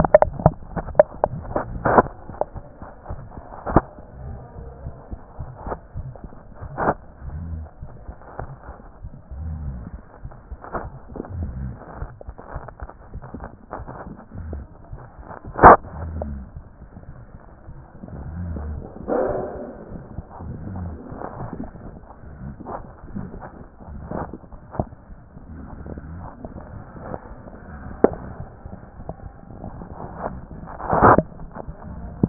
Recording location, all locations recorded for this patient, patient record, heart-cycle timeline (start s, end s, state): mitral valve (MV)
mitral valve (MV)
#Age: Child
#Sex: Male
#Height: 94.0 cm
#Weight: 15.7 kg
#Pregnancy status: False
#Murmur: Unknown
#Murmur locations: nan
#Most audible location: nan
#Systolic murmur timing: nan
#Systolic murmur shape: nan
#Systolic murmur grading: nan
#Systolic murmur pitch: nan
#Systolic murmur quality: nan
#Diastolic murmur timing: nan
#Diastolic murmur shape: nan
#Diastolic murmur grading: nan
#Diastolic murmur pitch: nan
#Diastolic murmur quality: nan
#Outcome: Abnormal
#Campaign: 2014 screening campaign
0.00	2.54	unannotated
2.54	2.64	S1
2.64	2.80	systole
2.80	2.88	S2
2.88	3.08	diastole
3.08	3.19	S1
3.19	3.36	systole
3.36	3.44	S2
3.44	3.68	diastole
3.68	3.78	S1
3.78	3.96	systole
3.96	4.04	S2
4.04	4.26	diastole
4.26	4.37	S1
4.37	4.58	systole
4.58	4.66	S2
4.66	4.84	diastole
4.84	4.94	S1
4.94	5.10	systole
5.10	5.19	S2
5.19	5.40	diastole
5.40	5.50	S1
5.50	5.68	systole
5.68	5.76	S2
5.76	5.96	diastole
5.96	32.29	unannotated